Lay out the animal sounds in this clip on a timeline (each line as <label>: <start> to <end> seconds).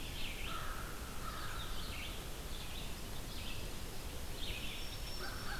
Red-eyed Vireo (Vireo olivaceus): 0.0 to 5.6 seconds
American Crow (Corvus brachyrhynchos): 0.2 to 2.0 seconds
Black-throated Green Warbler (Setophaga virens): 4.2 to 5.6 seconds